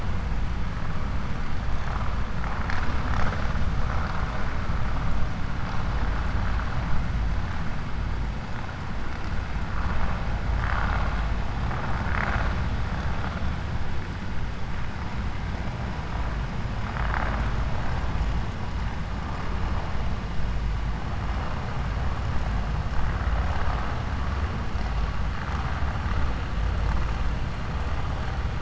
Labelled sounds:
10.5	11.2	vessel noise, 0.57 to 4.0 kHz

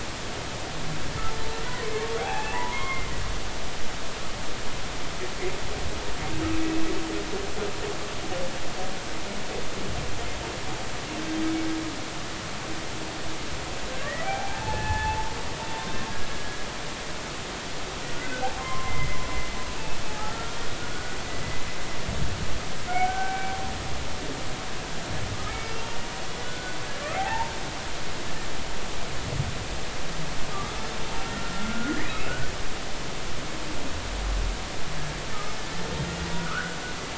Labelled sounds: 1.6	3.1	humpback whale, 0.80 to 3.3 kHz
13.9	15.3	humpback whale, 0.80 to 2.6 kHz
16.3	16.6	humpback whale, 1.6 to 1.7 kHz
18.1	20.6	humpback whale, 0.80 to 2.2 kHz
20.9	21.2	humpback whale, 1.4 to 1.6 kHz
22.9	23.7	humpback whale, 0.80 to 2.4 kHz
25.5	25.7	humpback whale, 2.1 to 2.3 kHz
26.4	27.5	humpback whale, 0.80 to 1.6 kHz
31.2	32.3	humpback whale, 1.3 to 2.7 kHz
36.3	36.8	humpback whale, 1.1 to 1.8 kHz

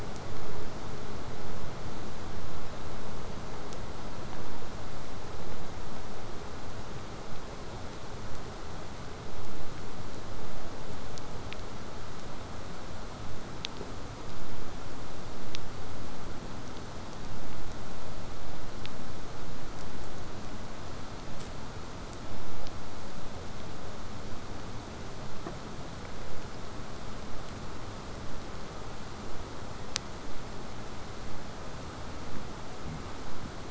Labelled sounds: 24.2	29.2	vessel noise, 0 to 8.0 kHz

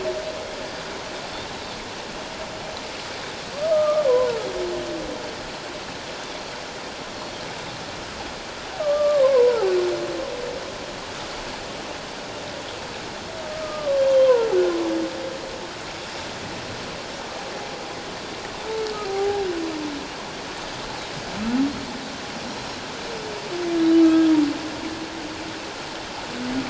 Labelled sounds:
0.7	0.9	Pacific white-sided dolphin, 4.7 to 4.9 kHz
3.7	4.4	humpback whale, 0.88 to 1.3 kHz
8.8	9.7	humpback whale, 0.78 to 1.3 kHz
13.5	14.5	humpback whale, 0.88 to 3.3 kHz
19.0	19.5	humpback whale, 0.78 to 0.88 kHz
24.0	24.3	humpback whale, 1.2 to 1.3 kHz

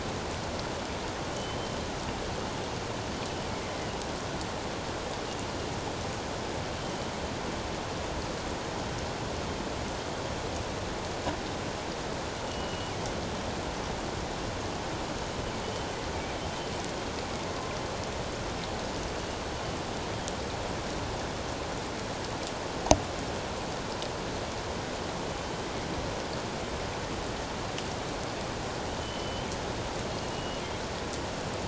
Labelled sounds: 1.3	1.7	killer whale, northern resident, G clan, GG subclan, 2.9 to 3.2 kHz
12.5	12.9	killer whale, northern resident, G clan, GG subclan, 2.8 to 3.0 kHz
25.4	25.7	killer whale, northern resident, G clan, GG subclan, 3.0 to 3.2 kHz
29.0	29.5	killer whale, northern resident, G clan, GG subclan, 2.9 to 3.2 kHz
30.3	30.6	killer whale, northern resident, G clan, GG subclan, 2.8 to 3.0 kHz

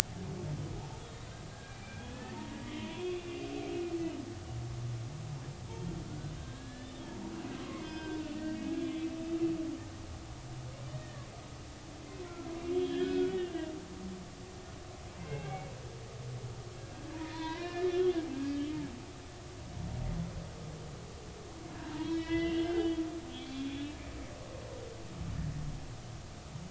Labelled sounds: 1.5	3.3	humpback whale, 0.86 to 3.2 kHz
6.4	7.0	humpback whale, 1.5 to 4.1 kHz
7.7	8.7	humpback whale, 1.5 to 5.1 kHz
10.9	11.3	humpback whale, 1.6 to 1.9 kHz
12.5	13.3	humpback whale, 1.6 to 3.4 kHz
14.0	15.7	humpback whale, 0.80 to 2.8 kHz
17.2	18.1	humpback whale, 0.90 to 4.3 kHz
21.7	24.0	humpback whale, 0.86 to 4.0 kHz

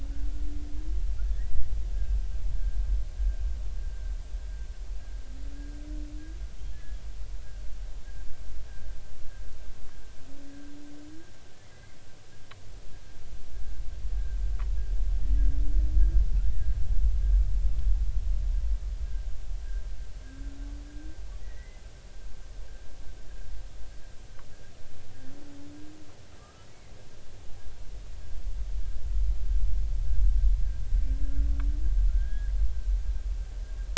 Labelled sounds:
1.2	1.7	humpback whale, 1.3 to 2.0 kHz
6.7	7.0	humpback whale, 1.6 to 1.8 kHz
11.6	12.0	humpback whale, 1.9 to 2.2 kHz
21.4	21.8	humpback whale, 1.8 to 2.1 kHz
26.4	26.7	humpback whale, 1.1 to 1.4 kHz
32.1	32.5	humpback whale, 1.3 to 1.8 kHz

